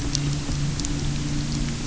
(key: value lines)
label: anthrophony, boat engine
recorder: SoundTrap 300